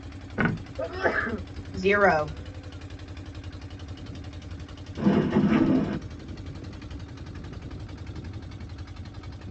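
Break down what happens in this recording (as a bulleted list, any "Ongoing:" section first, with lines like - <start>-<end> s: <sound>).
- 0.37-0.71 s: a plastic object falls
- 0.76-1.4 s: someone sneezes
- 1.76-2.26 s: a voice says "zero"
- 4.97-5.97 s: the sound of a dishwasher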